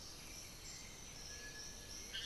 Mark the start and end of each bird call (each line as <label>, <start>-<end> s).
White-winged Becard (Pachyramphus polychopterus), 0.0-1.9 s
Amazonian Motmot (Momotus momota), 0.0-2.3 s
Black-billed Thrush (Turdus ignobilis), 0.0-2.3 s